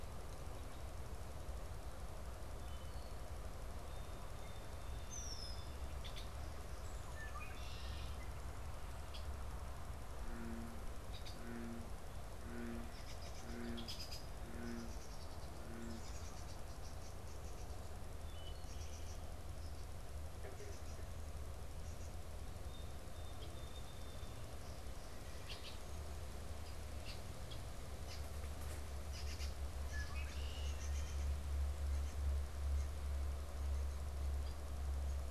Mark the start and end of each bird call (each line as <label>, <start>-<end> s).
Wood Thrush (Hylocichla mustelina), 2.6-3.3 s
Song Sparrow (Melospiza melodia), 3.7-5.8 s
Red-winged Blackbird (Agelaius phoeniceus), 5.1-11.4 s
unidentified bird, 12.8-21.2 s
Wood Thrush (Hylocichla mustelina), 18.2-19.0 s
Song Sparrow (Melospiza melodia), 22.5-24.8 s
Red-winged Blackbird (Agelaius phoeniceus), 25.1-31.5 s